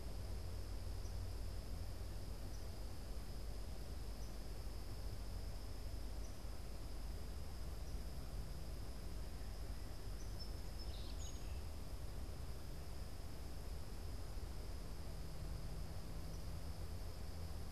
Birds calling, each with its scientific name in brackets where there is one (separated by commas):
American Robin (Turdus migratorius), Song Sparrow (Melospiza melodia)